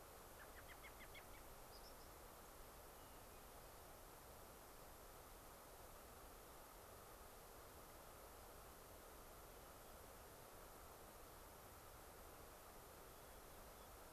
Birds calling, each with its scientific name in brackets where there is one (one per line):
unidentified bird
American Robin (Turdus migratorius)
Hermit Thrush (Catharus guttatus)